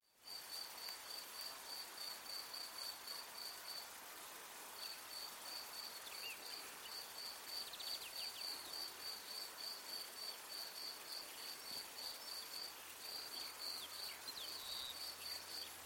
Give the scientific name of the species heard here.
Gryllus campestris